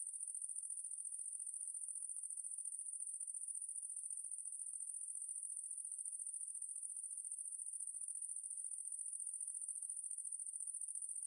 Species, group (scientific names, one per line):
Tettigonia viridissima
Orthoptera